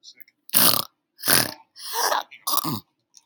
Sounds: Throat clearing